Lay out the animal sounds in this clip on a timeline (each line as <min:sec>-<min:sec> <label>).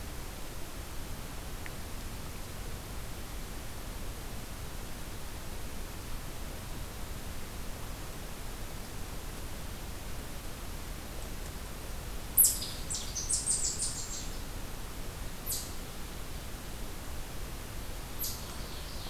0:12.3-0:18.4 Red Squirrel (Tamiasciurus hudsonicus)
0:18.1-0:19.1 Ovenbird (Seiurus aurocapilla)